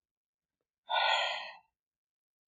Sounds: Sigh